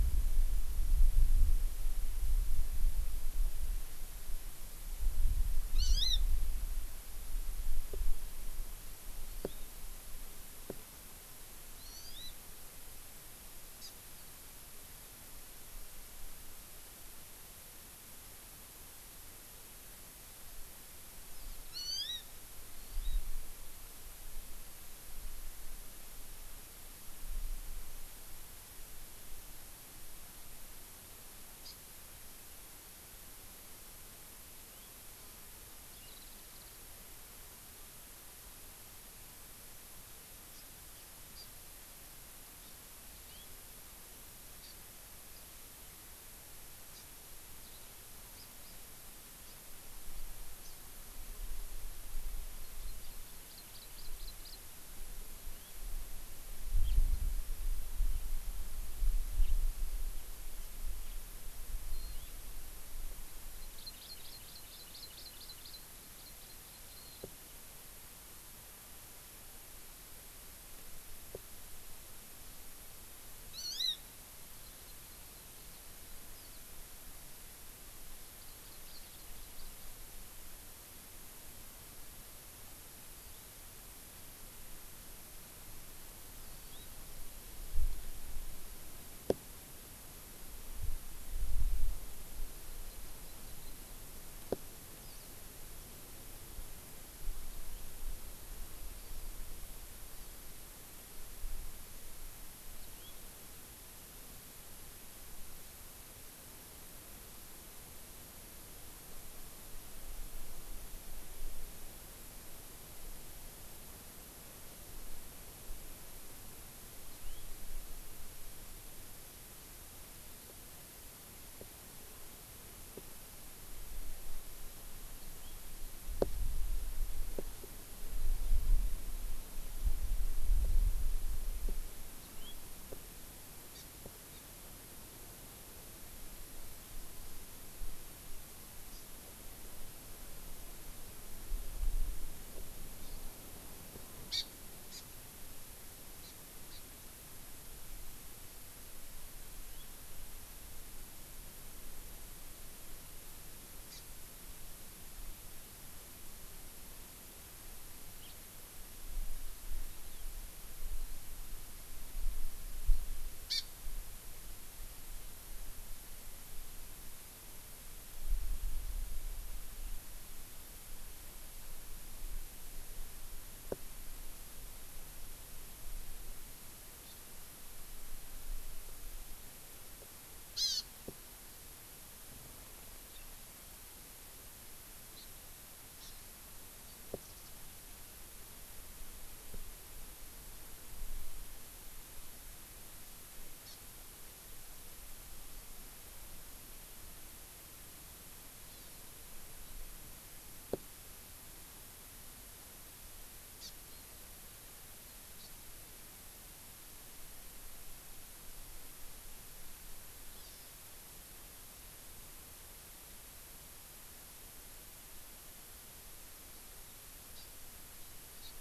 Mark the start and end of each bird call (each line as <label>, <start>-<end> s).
Hawaii Amakihi (Chlorodrepanis virens), 5.8-6.2 s
Hawaii Amakihi (Chlorodrepanis virens), 9.3-9.7 s
Hawaii Amakihi (Chlorodrepanis virens), 11.8-12.4 s
Hawaii Amakihi (Chlorodrepanis virens), 13.8-14.0 s
Hawaii Amakihi (Chlorodrepanis virens), 21.7-22.3 s
Hawaii Amakihi (Chlorodrepanis virens), 22.8-23.2 s
Hawaii Amakihi (Chlorodrepanis virens), 31.7-31.8 s
House Finch (Haemorhous mexicanus), 34.6-34.9 s
Warbling White-eye (Zosterops japonicus), 36.1-36.9 s
Hawaii Amakihi (Chlorodrepanis virens), 40.5-40.7 s
Hawaii Amakihi (Chlorodrepanis virens), 41.3-41.5 s
Hawaii Amakihi (Chlorodrepanis virens), 42.7-42.8 s
Hawaii Amakihi (Chlorodrepanis virens), 44.6-44.8 s
Hawaii Amakihi (Chlorodrepanis virens), 47.0-47.1 s
Eurasian Skylark (Alauda arvensis), 47.7-47.9 s
House Finch (Haemorhous mexicanus), 48.4-48.5 s
House Finch (Haemorhous mexicanus), 50.6-50.8 s
Hawaii Amakihi (Chlorodrepanis virens), 52.6-54.7 s
House Finch (Haemorhous mexicanus), 55.4-55.8 s
House Finch (Haemorhous mexicanus), 56.9-57.0 s
House Finch (Haemorhous mexicanus), 59.5-59.6 s
Hawaii Amakihi (Chlorodrepanis virens), 62.0-62.3 s
Hawaii Amakihi (Chlorodrepanis virens), 63.6-67.3 s
Hawaii Amakihi (Chlorodrepanis virens), 73.5-74.0 s
Hawaii Amakihi (Chlorodrepanis virens), 74.5-76.2 s
Hawaii Amakihi (Chlorodrepanis virens), 78.4-80.0 s
Hawaii Amakihi (Chlorodrepanis virens), 86.4-86.9 s
Hawaii Amakihi (Chlorodrepanis virens), 92.6-94.0 s
House Finch (Haemorhous mexicanus), 102.8-103.2 s
House Finch (Haemorhous mexicanus), 117.1-117.5 s
House Finch (Haemorhous mexicanus), 125.2-125.6 s
House Finch (Haemorhous mexicanus), 132.2-132.6 s
Hawaii Amakihi (Chlorodrepanis virens), 133.8-133.9 s
Hawaii Amakihi (Chlorodrepanis virens), 134.4-134.5 s
Hawaii Amakihi (Chlorodrepanis virens), 138.9-139.1 s
Hawaii Amakihi (Chlorodrepanis virens), 143.0-143.3 s
Hawaii Amakihi (Chlorodrepanis virens), 144.3-144.5 s
Hawaii Amakihi (Chlorodrepanis virens), 144.9-145.1 s
Hawaii Amakihi (Chlorodrepanis virens), 146.3-146.4 s
Hawaii Amakihi (Chlorodrepanis virens), 146.8-146.9 s
House Finch (Haemorhous mexicanus), 149.7-149.9 s
Hawaii Amakihi (Chlorodrepanis virens), 154.0-154.1 s
House Finch (Haemorhous mexicanus), 158.3-158.4 s
Hawaii Amakihi (Chlorodrepanis virens), 163.5-163.7 s
Hawaii Amakihi (Chlorodrepanis virens), 177.1-177.2 s
Hawaii Amakihi (Chlorodrepanis virens), 180.6-180.9 s
Hawaii Amakihi (Chlorodrepanis virens), 185.2-185.3 s
Hawaii Amakihi (Chlorodrepanis virens), 186.0-186.2 s
Warbling White-eye (Zosterops japonicus), 187.3-187.6 s
Hawaii Amakihi (Chlorodrepanis virens), 193.7-193.8 s
Hawaii Amakihi (Chlorodrepanis virens), 198.7-199.1 s
Hawaii Amakihi (Chlorodrepanis virens), 203.6-203.8 s
Hawaii Amakihi (Chlorodrepanis virens), 205.4-205.5 s
Hawaii Amakihi (Chlorodrepanis virens), 210.4-210.8 s
Hawaii Amakihi (Chlorodrepanis virens), 217.4-217.5 s
Hawaii Amakihi (Chlorodrepanis virens), 218.4-218.6 s